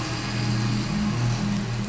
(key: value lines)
label: anthrophony, boat engine
recorder: SoundTrap 500